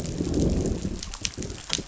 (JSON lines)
{"label": "biophony, growl", "recorder": "SoundTrap 500"}